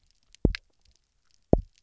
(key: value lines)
label: biophony, double pulse
recorder: SoundTrap 300